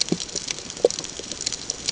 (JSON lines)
{"label": "ambient", "recorder": "HydroMoth"}